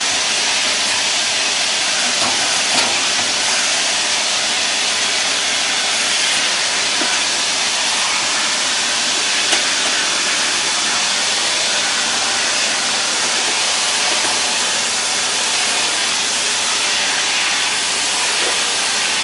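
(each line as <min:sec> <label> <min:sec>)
0:00.0 A very loud and constant vacuum sound. 0:19.2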